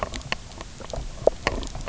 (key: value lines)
label: biophony, knock croak
recorder: SoundTrap 300